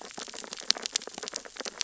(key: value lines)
label: biophony, sea urchins (Echinidae)
recorder: SoundTrap 600 or HydroMoth